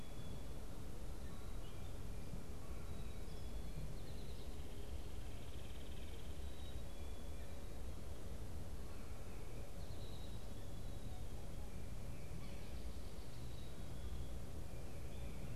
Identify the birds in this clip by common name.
Eastern Towhee, unidentified bird